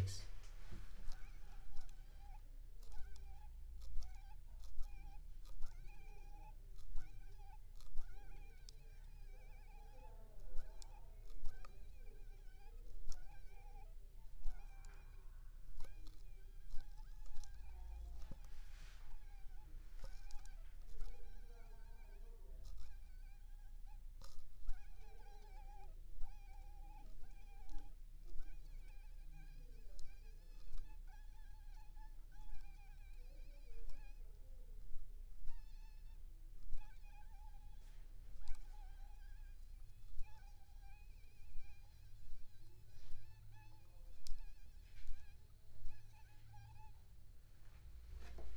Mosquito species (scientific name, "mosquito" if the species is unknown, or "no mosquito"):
Aedes aegypti